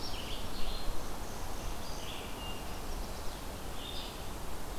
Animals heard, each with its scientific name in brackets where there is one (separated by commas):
Red-eyed Vireo (Vireo olivaceus), Chestnut-sided Warbler (Setophaga pensylvanica), Evening Grosbeak (Coccothraustes vespertinus)